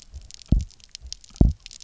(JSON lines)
{"label": "biophony, double pulse", "recorder": "SoundTrap 300"}